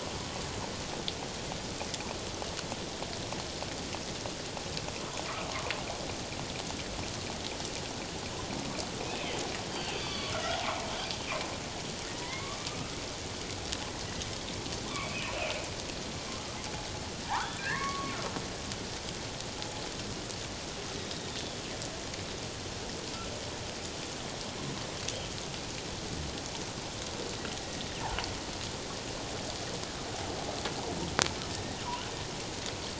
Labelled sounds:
9.0	9.3	killer whale, northern resident, G clan, 2.3 to 2.7 kHz
9.7	10.6	killer whale, northern resident, G clan, 1.1 to 4.7 kHz
12.2	12.9	killer whale, northern resident, G clan, 1.1 to 2.3 kHz
14.9	15.7	killer whale, northern resident, G clan, 2.1 to 2.8 kHz
17.2	18.2	killer whale, northern resident, G clan, 0.78 to 2.3 kHz
21.0	21.4	killer whale, northern resident, G clan, 3.5 to 3.8 kHz
31.5	31.8	killer whale, northern resident, G clan, 1.8 to 2.0 kHz

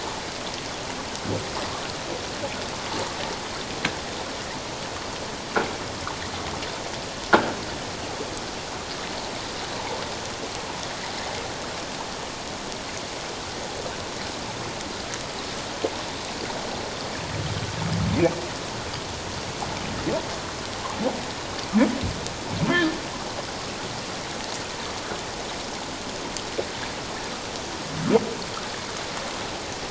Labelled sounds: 22.7	23.0	humpback whale, 1.6 to 1.9 kHz

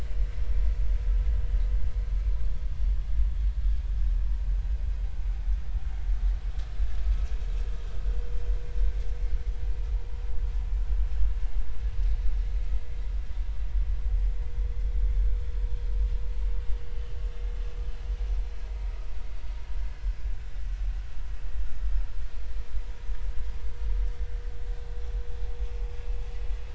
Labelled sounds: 16.9	17.1	vessel noise, 2.9 to 3.1 kHz
19.8	20.2	vessel noise, 5.2 to 5.5 kHz

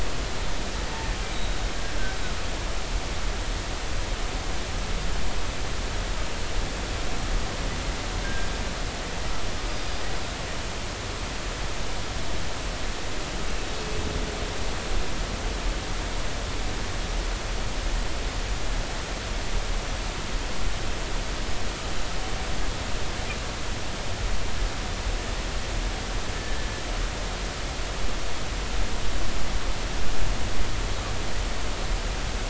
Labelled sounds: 1.3	1.6	humpback whale, 3.7 to 3.9 kHz
8.2	8.5	humpback whale, 1.5 to 1.7 kHz
26.3	26.7	humpback whale, 1.7 to 1.9 kHz

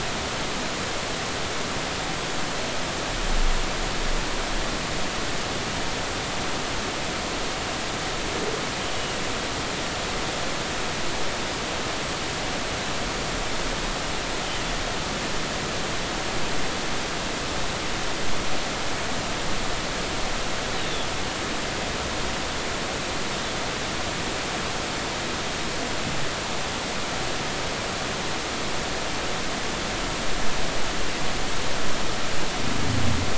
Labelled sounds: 20.8	21.1	Pacific white-sided dolphin, 3.3 to 3.7 kHz

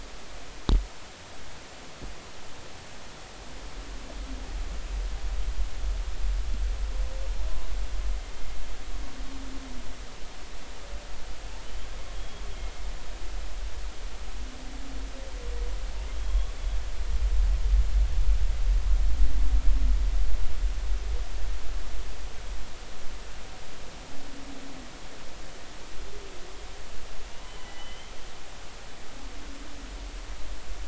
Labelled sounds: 12.1	12.4	humpback whale, 3.2 to 3.4 kHz
16.2	16.5	humpback whale, 0.99 to 3.4 kHz
27.3	28.1	humpback whale, 0.93 to 3.2 kHz

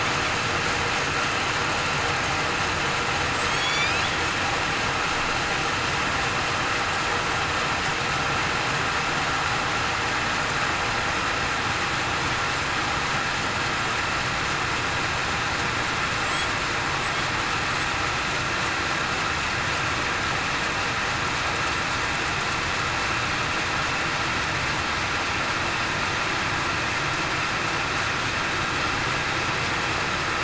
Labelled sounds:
3.4	3.9	killer whale, southern resident, 7.8 to 8.0 kHz

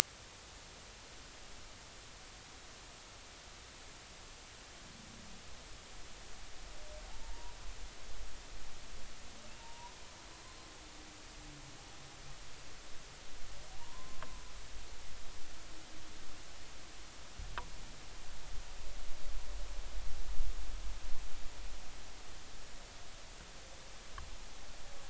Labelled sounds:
7.2	7.5	humpback whale, 0.86 to 1.0 kHz
9.6	10.0	humpback whale, 0.86 to 1.0 kHz
13.8	14.4	humpback whale, 0.86 to 1.2 kHz

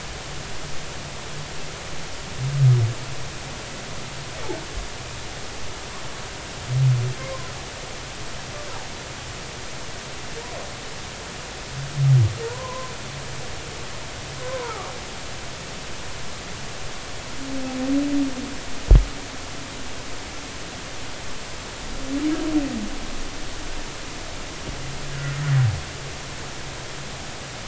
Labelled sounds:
7.2	7.5	humpback whale, 0.96 to 1.2 kHz
12.4	12.9	humpback whale, 0.90 to 1.1 kHz
14.4	14.9	humpback whale, 0.80 to 1.5 kHz

